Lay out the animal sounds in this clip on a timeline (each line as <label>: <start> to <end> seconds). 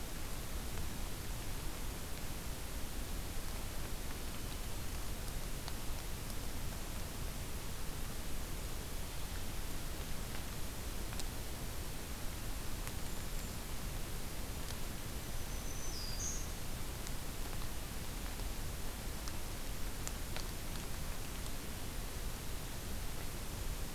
Golden-crowned Kinglet (Regulus satrapa): 12.8 to 13.8 seconds
Black-throated Green Warbler (Setophaga virens): 15.1 to 16.4 seconds